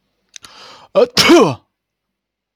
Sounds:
Sneeze